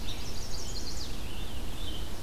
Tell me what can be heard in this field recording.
Chestnut-sided Warbler, Scarlet Tanager